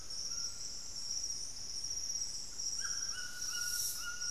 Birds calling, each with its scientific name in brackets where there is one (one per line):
White-throated Toucan (Ramphastos tucanus)